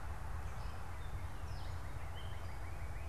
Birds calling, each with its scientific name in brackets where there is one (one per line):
Northern Cardinal (Cardinalis cardinalis)